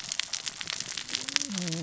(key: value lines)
label: biophony, cascading saw
recorder: SoundTrap 600 or HydroMoth